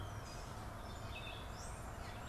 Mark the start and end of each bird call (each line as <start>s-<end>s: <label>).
0.3s-2.3s: Gray Catbird (Dumetella carolinensis)
1.5s-2.3s: Red-eyed Vireo (Vireo olivaceus)